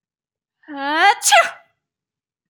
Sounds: Sneeze